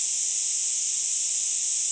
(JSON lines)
{"label": "ambient", "recorder": "HydroMoth"}